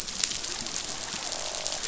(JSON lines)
{"label": "biophony, croak", "recorder": "SoundTrap 500"}